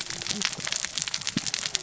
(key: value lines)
label: biophony, cascading saw
recorder: SoundTrap 600 or HydroMoth